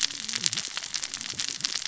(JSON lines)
{"label": "biophony, cascading saw", "recorder": "SoundTrap 600 or HydroMoth"}